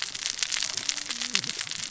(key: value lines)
label: biophony, cascading saw
recorder: SoundTrap 600 or HydroMoth